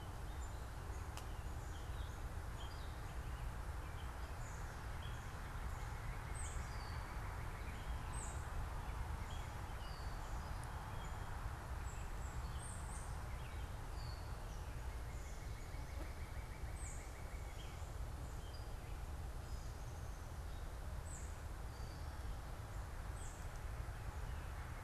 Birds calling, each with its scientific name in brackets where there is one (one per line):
unidentified bird
Northern Cardinal (Cardinalis cardinalis)